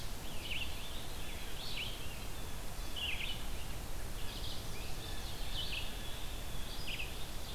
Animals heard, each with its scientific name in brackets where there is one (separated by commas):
Red-eyed Vireo (Vireo olivaceus), Blue Jay (Cyanocitta cristata)